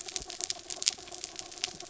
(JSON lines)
{"label": "anthrophony, mechanical", "recorder": "SoundTrap 300"}